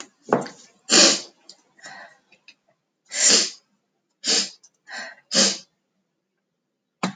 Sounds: Sniff